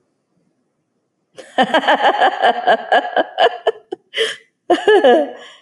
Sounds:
Laughter